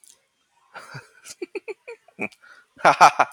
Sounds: Laughter